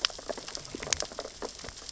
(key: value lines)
label: biophony, sea urchins (Echinidae)
recorder: SoundTrap 600 or HydroMoth